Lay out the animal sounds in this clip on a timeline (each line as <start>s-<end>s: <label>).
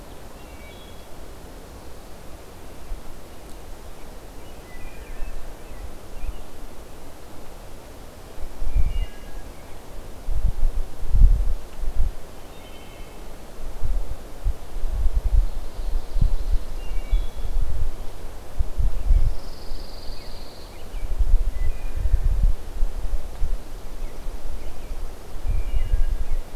0.3s-1.1s: Wood Thrush (Hylocichla mustelina)
4.3s-5.2s: Wood Thrush (Hylocichla mustelina)
8.4s-9.6s: Wood Thrush (Hylocichla mustelina)
12.1s-13.5s: Wood Thrush (Hylocichla mustelina)
15.3s-17.0s: Ovenbird (Seiurus aurocapilla)
16.7s-17.7s: Wood Thrush (Hylocichla mustelina)
19.0s-21.0s: Pine Warbler (Setophaga pinus)
21.3s-22.3s: Wood Thrush (Hylocichla mustelina)
25.4s-26.3s: Wood Thrush (Hylocichla mustelina)